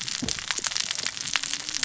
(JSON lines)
{"label": "biophony, cascading saw", "recorder": "SoundTrap 600 or HydroMoth"}